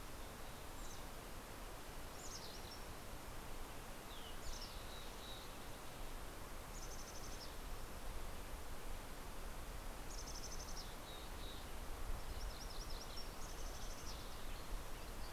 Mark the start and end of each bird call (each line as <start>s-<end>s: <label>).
0.2s-1.5s: Mountain Chickadee (Poecile gambeli)
1.9s-3.1s: Mountain Chickadee (Poecile gambeli)
3.9s-5.6s: Mountain Chickadee (Poecile gambeli)
6.4s-8.2s: Mountain Chickadee (Poecile gambeli)
9.7s-11.9s: Mountain Chickadee (Poecile gambeli)
12.0s-13.7s: MacGillivray's Warbler (Geothlypis tolmiei)
13.3s-14.6s: Mountain Chickadee (Poecile gambeli)